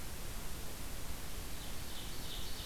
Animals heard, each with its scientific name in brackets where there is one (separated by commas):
Ovenbird (Seiurus aurocapilla)